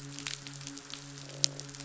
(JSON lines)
{"label": "biophony, midshipman", "recorder": "SoundTrap 500"}
{"label": "biophony, croak", "recorder": "SoundTrap 500"}